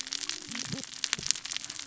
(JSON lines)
{"label": "biophony, cascading saw", "recorder": "SoundTrap 600 or HydroMoth"}